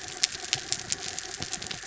{"label": "anthrophony, mechanical", "recorder": "SoundTrap 300"}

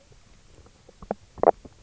{"label": "biophony, knock croak", "recorder": "SoundTrap 300"}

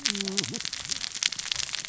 {"label": "biophony, cascading saw", "recorder": "SoundTrap 600 or HydroMoth"}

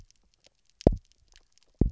{"label": "biophony, double pulse", "recorder": "SoundTrap 300"}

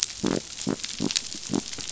{"label": "biophony", "recorder": "SoundTrap 500"}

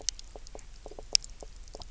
{"label": "biophony, knock croak", "recorder": "SoundTrap 300"}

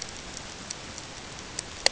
{"label": "ambient", "recorder": "HydroMoth"}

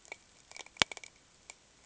{"label": "ambient", "recorder": "HydroMoth"}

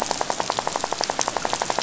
{"label": "biophony, rattle", "recorder": "SoundTrap 500"}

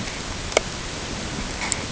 {"label": "ambient", "recorder": "HydroMoth"}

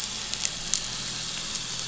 {"label": "anthrophony, boat engine", "recorder": "SoundTrap 500"}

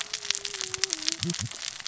{"label": "biophony, cascading saw", "recorder": "SoundTrap 600 or HydroMoth"}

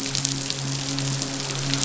{"label": "biophony, midshipman", "recorder": "SoundTrap 500"}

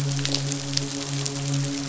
{"label": "biophony, midshipman", "recorder": "SoundTrap 500"}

